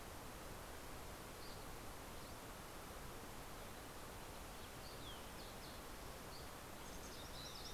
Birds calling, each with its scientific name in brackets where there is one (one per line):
Fox Sparrow (Passerella iliaca)
MacGillivray's Warbler (Geothlypis tolmiei)
Dusky Flycatcher (Empidonax oberholseri)